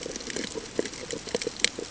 {"label": "ambient", "recorder": "HydroMoth"}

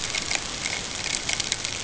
{"label": "ambient", "recorder": "HydroMoth"}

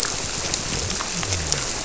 {"label": "biophony", "recorder": "SoundTrap 300"}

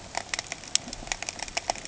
{"label": "ambient", "recorder": "HydroMoth"}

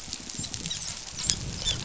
{"label": "biophony, dolphin", "recorder": "SoundTrap 500"}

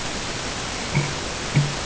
{"label": "ambient", "recorder": "HydroMoth"}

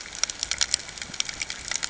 {"label": "ambient", "recorder": "HydroMoth"}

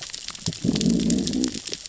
{"label": "biophony, growl", "recorder": "SoundTrap 600 or HydroMoth"}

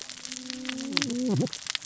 {"label": "biophony, cascading saw", "recorder": "SoundTrap 600 or HydroMoth"}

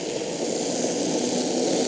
{"label": "anthrophony, boat engine", "recorder": "HydroMoth"}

